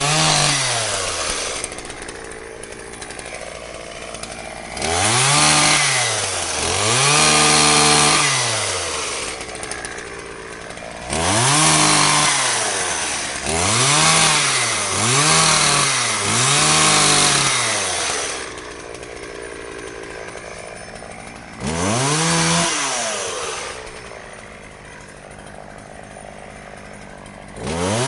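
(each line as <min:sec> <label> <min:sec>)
0:00.1 A chainsaw engine fluctuates between aggressive revving and idle sputtering. 0:28.1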